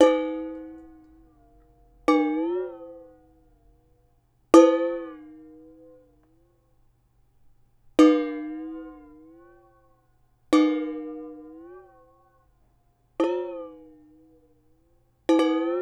how many times does the can get hit?
seven